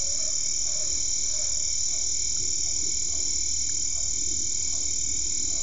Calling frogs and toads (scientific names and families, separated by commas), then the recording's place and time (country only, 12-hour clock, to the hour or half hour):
Physalaemus cuvieri (Leptodactylidae)
Brazil, ~8pm